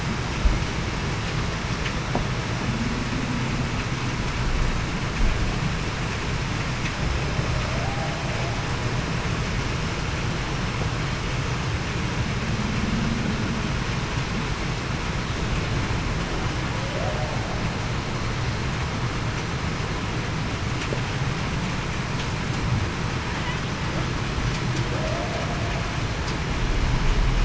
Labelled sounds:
7.7	8.1	humpback whale, 0.61 to 0.84 kHz
24.9	25.5	humpback whale, 0.47 to 0.73 kHz

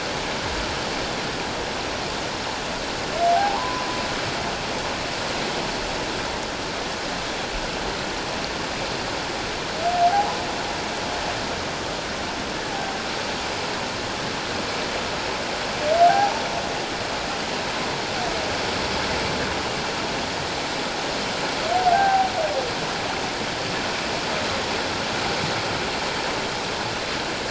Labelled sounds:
3.3	3.9	humpback whale, 0.78 to 1.2 kHz
10.1	10.4	humpback whale, 0.78 to 1.0 kHz
16.1	16.4	humpback whale, 0.78 to 0.94 kHz
21.7	22.3	humpback whale, 0.78 to 1.6 kHz

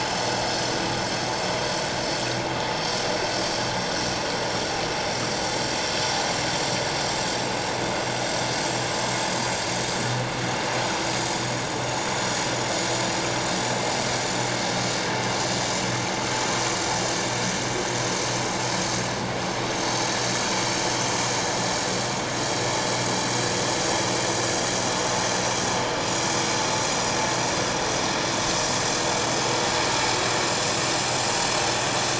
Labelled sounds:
23.8	24.1	vessel noise, 6.9 to 7.0 kHz
25.3	25.6	vessel noise, 5.7 to 5.8 kHz

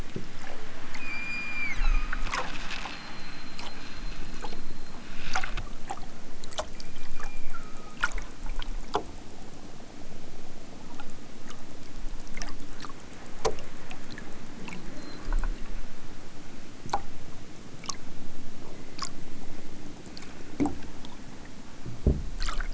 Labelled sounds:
0.9	2.3	killer whale, southern Alaska resident, 0.83 to 8.0 kHz
6.7	8.0	killer whale, southern Alaska resident, 0.92 to 5.1 kHz

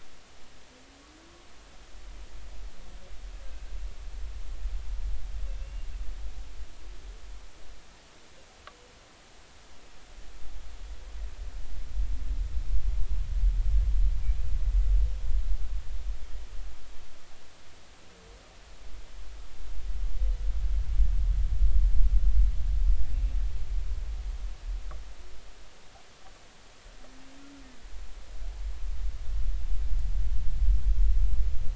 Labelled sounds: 5.6	5.9	humpback whale, 2.6 to 2.9 kHz

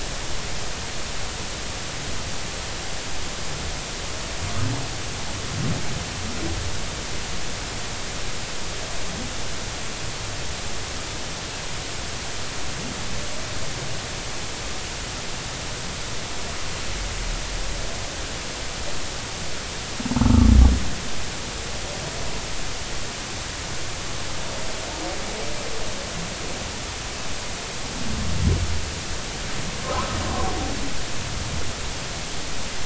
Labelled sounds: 20.2	20.5	humpback whale, 1.1 to 1.4 kHz
29.9	30.2	humpback whale, 1.2 to 1.4 kHz

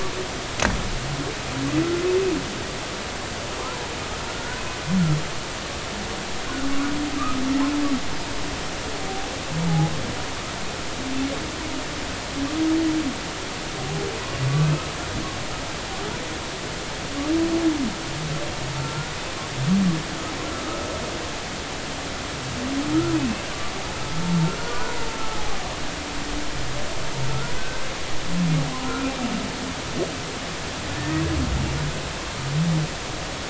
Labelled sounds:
4.3	4.6	humpback whale, 1.4 to 1.6 kHz
7.1	7.4	humpback whale, 1.1 to 1.4 kHz
18.8	19.1	humpback whale, 1.3 to 1.5 kHz
20.5	20.8	humpback whale, 1.2 to 1.4 kHz
23.1	23.4	humpback whale, 2.5 to 2.8 kHz
24.6	25.0	humpback whale, 0.93 to 1.5 kHz
27.6	27.8	humpback whale, 1.5 to 1.6 kHz
28.8	29.1	humpback whale, 1.2 to 1.5 kHz
31.0	31.2	humpback whale, 1.8 to 2.0 kHz

